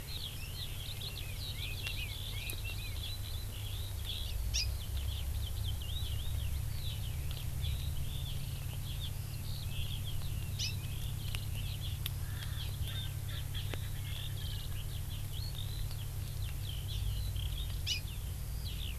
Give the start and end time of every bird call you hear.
0.1s-19.0s: Eurasian Skylark (Alauda arvensis)
1.1s-3.0s: Red-billed Leiothrix (Leiothrix lutea)
4.5s-4.7s: Hawaii Amakihi (Chlorodrepanis virens)
10.6s-10.7s: Hawaii Amakihi (Chlorodrepanis virens)
12.2s-14.8s: Erckel's Francolin (Pternistis erckelii)
16.9s-17.1s: Hawaii Amakihi (Chlorodrepanis virens)
17.9s-18.0s: Hawaii Amakihi (Chlorodrepanis virens)

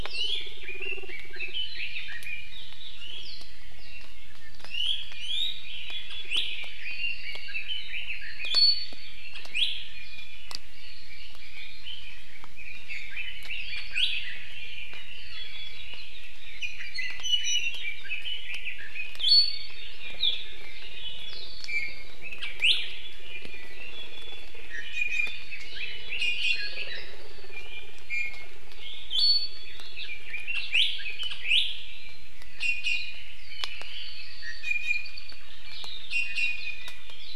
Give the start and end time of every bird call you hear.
0.1s-0.6s: Iiwi (Drepanis coccinea)
0.6s-2.5s: Red-billed Leiothrix (Leiothrix lutea)
3.0s-3.3s: Iiwi (Drepanis coccinea)
4.6s-5.6s: Iiwi (Drepanis coccinea)
6.3s-6.5s: Iiwi (Drepanis coccinea)
6.5s-8.4s: Red-billed Leiothrix (Leiothrix lutea)
8.4s-8.9s: Iiwi (Drepanis coccinea)
9.5s-9.7s: Iiwi (Drepanis coccinea)
10.7s-13.9s: Red-billed Leiothrix (Leiothrix lutea)
13.9s-14.2s: Iiwi (Drepanis coccinea)
15.4s-16.0s: Iiwi (Drepanis coccinea)
16.6s-18.0s: Iiwi (Drepanis coccinea)
18.0s-19.2s: Red-billed Leiothrix (Leiothrix lutea)
19.2s-19.9s: Iiwi (Drepanis coccinea)
20.6s-22.8s: Iiwi (Drepanis coccinea)
22.9s-24.5s: Apapane (Himatione sanguinea)
24.7s-25.5s: Iiwi (Drepanis coccinea)
26.1s-27.2s: Iiwi (Drepanis coccinea)
27.5s-28.5s: Iiwi (Drepanis coccinea)
28.8s-29.8s: Iiwi (Drepanis coccinea)
30.0s-31.3s: Red-billed Leiothrix (Leiothrix lutea)
30.7s-30.9s: Iiwi (Drepanis coccinea)
31.4s-31.7s: Iiwi (Drepanis coccinea)
32.6s-33.2s: Iiwi (Drepanis coccinea)
34.1s-35.2s: Iiwi (Drepanis coccinea)
36.1s-37.2s: Iiwi (Drepanis coccinea)

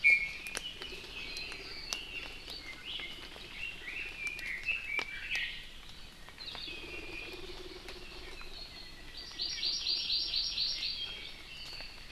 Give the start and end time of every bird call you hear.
0.0s-0.6s: Iiwi (Drepanis coccinea)
0.6s-2.4s: Red-billed Leiothrix (Leiothrix lutea)
3.5s-5.2s: Red-billed Leiothrix (Leiothrix lutea)
6.4s-6.7s: Hawaii Akepa (Loxops coccineus)
6.7s-7.4s: Iiwi (Drepanis coccinea)
7.1s-8.4s: Hawaii Amakihi (Chlorodrepanis virens)
9.2s-11.1s: Hawaii Amakihi (Chlorodrepanis virens)

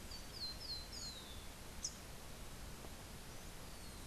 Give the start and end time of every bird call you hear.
0.0s-1.6s: Rufous-collared Sparrow (Zonotrichia capensis)
1.7s-2.1s: Rufous-capped Warbler (Basileuterus rufifrons)

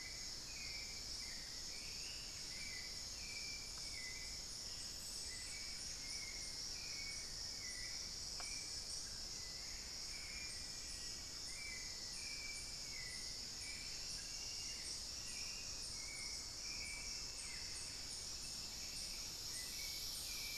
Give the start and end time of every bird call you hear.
0.0s-20.6s: Hauxwell's Thrush (Turdus hauxwelli)
0.0s-20.6s: unidentified bird
8.9s-11.6s: Black-faced Antthrush (Formicarius analis)
15.0s-20.6s: Thrush-like Wren (Campylorhynchus turdinus)

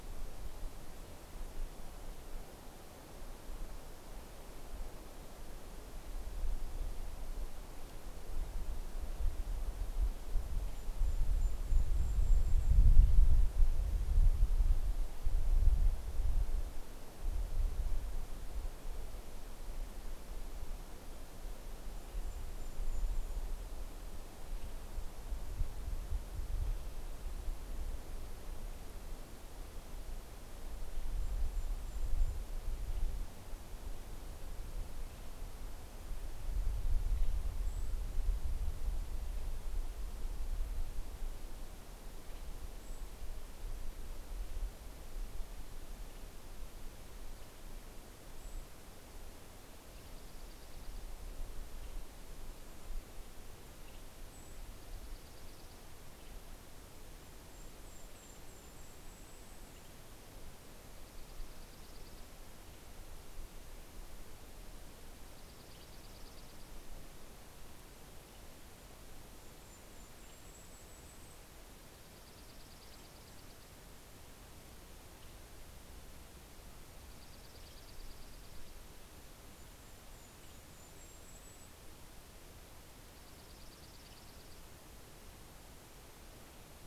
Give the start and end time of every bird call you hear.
9.8s-13.5s: Golden-crowned Kinglet (Regulus satrapa)
21.6s-23.9s: Golden-crowned Kinglet (Regulus satrapa)
30.6s-33.5s: Golden-crowned Kinglet (Regulus satrapa)
30.7s-37.9s: Western Tanager (Piranga ludoviciana)
37.1s-38.6s: Golden-crowned Kinglet (Regulus satrapa)
41.6s-43.2s: Western Tanager (Piranga ludoviciana)
42.3s-43.4s: Golden-crowned Kinglet (Regulus satrapa)
47.8s-49.7s: Golden-crowned Kinglet (Regulus satrapa)
49.3s-51.7s: Dark-eyed Junco (Junco hyemalis)
50.7s-60.3s: Western Tanager (Piranga ludoviciana)
53.6s-55.2s: Golden-crowned Kinglet (Regulus satrapa)
54.1s-56.7s: Dark-eyed Junco (Junco hyemalis)
56.9s-60.3s: Golden-crowned Kinglet (Regulus satrapa)
60.3s-63.2s: Dark-eyed Junco (Junco hyemalis)
64.1s-67.1s: Dark-eyed Junco (Junco hyemalis)
64.1s-70.9s: Western Tanager (Piranga ludoviciana)
68.7s-74.1s: Golden-crowned Kinglet (Regulus satrapa)
71.7s-74.0s: Dark-eyed Junco (Junco hyemalis)
74.9s-85.3s: Western Tanager (Piranga ludoviciana)
76.8s-79.1s: Dark-eyed Junco (Junco hyemalis)
78.8s-82.5s: Golden-crowned Kinglet (Regulus satrapa)
82.7s-84.9s: Dark-eyed Junco (Junco hyemalis)

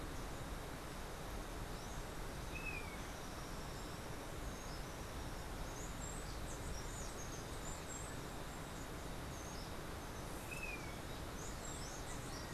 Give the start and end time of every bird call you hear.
2.5s-3.1s: Golden-faced Tyrannulet (Zimmerius chrysops)
5.3s-12.5s: Steely-vented Hummingbird (Saucerottia saucerottei)
10.4s-11.0s: Golden-faced Tyrannulet (Zimmerius chrysops)

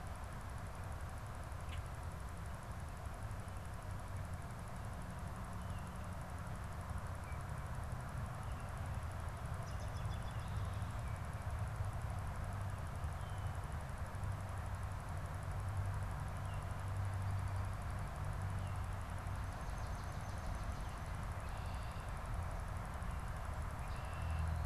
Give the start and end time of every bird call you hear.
1.6s-1.9s: Common Grackle (Quiscalus quiscula)
9.3s-10.7s: American Robin (Turdus migratorius)
18.8s-20.9s: Swamp Sparrow (Melospiza georgiana)
21.2s-24.6s: Red-winged Blackbird (Agelaius phoeniceus)

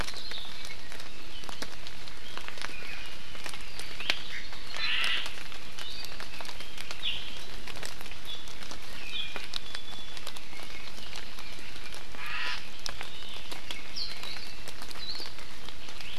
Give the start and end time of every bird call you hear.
0.0s-0.5s: Warbling White-eye (Zosterops japonicus)
4.3s-5.3s: Omao (Myadestes obscurus)
5.8s-6.1s: Iiwi (Drepanis coccinea)
9.0s-10.2s: Iiwi (Drepanis coccinea)
12.1s-12.6s: Omao (Myadestes obscurus)
13.9s-14.1s: Warbling White-eye (Zosterops japonicus)
14.2s-14.5s: Hawaii Akepa (Loxops coccineus)
15.0s-15.3s: Hawaii Akepa (Loxops coccineus)

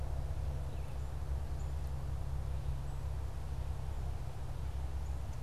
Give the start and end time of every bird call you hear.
1.4s-5.4s: Black-capped Chickadee (Poecile atricapillus)

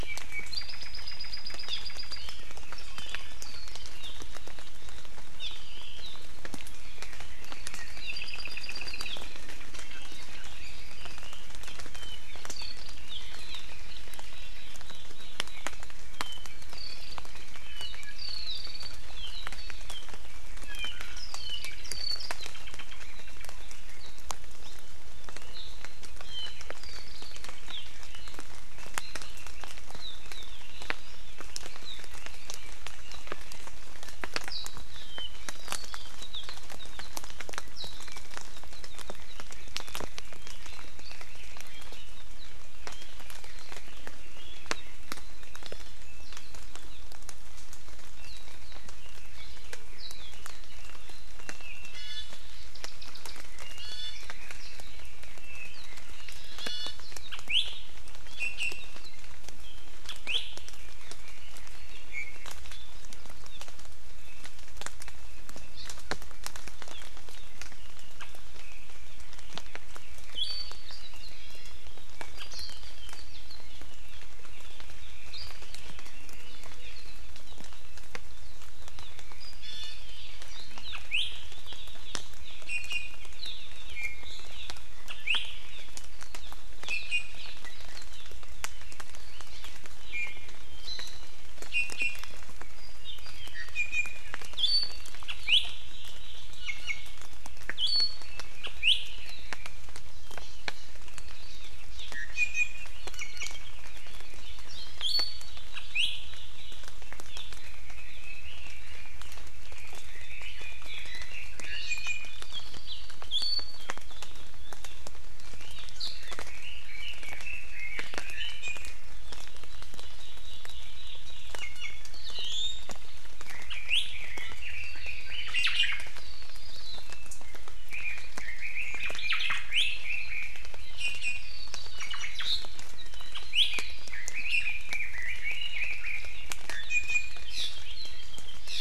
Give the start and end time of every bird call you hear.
0.0s-2.3s: Apapane (Himatione sanguinea)
5.4s-5.5s: Hawaii Amakihi (Chlorodrepanis virens)
7.9s-9.2s: Apapane (Himatione sanguinea)
11.9s-13.2s: Apapane (Himatione sanguinea)
16.1s-17.3s: Apapane (Himatione sanguinea)
17.6s-19.0s: Apapane (Himatione sanguinea)
20.6s-23.0s: Apapane (Himatione sanguinea)
25.3s-27.9s: Apapane (Himatione sanguinea)
30.2s-32.9s: Red-billed Leiothrix (Leiothrix lutea)
34.9s-37.1s: Apapane (Himatione sanguinea)
38.9s-45.6s: Red-billed Leiothrix (Leiothrix lutea)
48.2s-51.9s: Red-billed Leiothrix (Leiothrix lutea)
51.9s-52.4s: Iiwi (Drepanis coccinea)
53.6s-54.2s: Iiwi (Drepanis coccinea)
56.5s-57.0s: Iiwi (Drepanis coccinea)
57.4s-57.8s: Iiwi (Drepanis coccinea)
58.4s-59.1s: Iiwi (Drepanis coccinea)
60.2s-60.5s: Iiwi (Drepanis coccinea)
62.1s-62.6s: Iiwi (Drepanis coccinea)
70.3s-70.8s: Iiwi (Drepanis coccinea)
71.3s-71.9s: Iiwi (Drepanis coccinea)
79.6s-80.1s: Iiwi (Drepanis coccinea)
81.1s-81.3s: Iiwi (Drepanis coccinea)
82.7s-83.2s: Iiwi (Drepanis coccinea)
83.9s-84.3s: Iiwi (Drepanis coccinea)
85.2s-85.5s: Iiwi (Drepanis coccinea)
86.8s-87.4s: Iiwi (Drepanis coccinea)
90.1s-90.5s: Iiwi (Drepanis coccinea)
91.7s-92.3s: Iiwi (Drepanis coccinea)
93.2s-94.2s: Iiwi (Drepanis coccinea)
94.5s-95.6s: Iiwi (Drepanis coccinea)
96.6s-97.0s: Iiwi (Drepanis coccinea)
97.7s-98.4s: Iiwi (Drepanis coccinea)
98.8s-99.0s: Iiwi (Drepanis coccinea)
102.1s-103.7s: Iiwi (Drepanis coccinea)
105.0s-105.6s: Iiwi (Drepanis coccinea)
105.9s-106.1s: Iiwi (Drepanis coccinea)
107.6s-109.2s: Red-billed Leiothrix (Leiothrix lutea)
109.6s-111.7s: Red-billed Leiothrix (Leiothrix lutea)
111.6s-112.5s: Iiwi (Drepanis coccinea)
113.3s-113.8s: Iiwi (Drepanis coccinea)
116.2s-118.6s: Red-billed Leiothrix (Leiothrix lutea)
118.6s-118.9s: Iiwi (Drepanis coccinea)
121.5s-122.9s: Iiwi (Drepanis coccinea)
123.4s-125.5s: Red-billed Leiothrix (Leiothrix lutea)
123.7s-124.1s: Iiwi (Drepanis coccinea)
125.5s-126.1s: Omao (Myadestes obscurus)
127.9s-130.5s: Red-billed Leiothrix (Leiothrix lutea)
129.2s-129.7s: Omao (Myadestes obscurus)
129.7s-130.0s: Iiwi (Drepanis coccinea)
131.0s-131.7s: Iiwi (Drepanis coccinea)
131.9s-132.4s: Omao (Myadestes obscurus)
133.5s-133.7s: Iiwi (Drepanis coccinea)
134.1s-136.5s: Red-billed Leiothrix (Leiothrix lutea)
136.9s-137.5s: Iiwi (Drepanis coccinea)
137.7s-138.6s: Apapane (Himatione sanguinea)

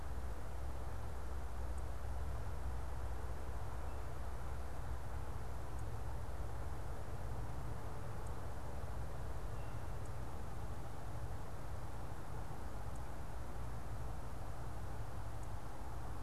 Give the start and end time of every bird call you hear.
9.5s-9.8s: unidentified bird

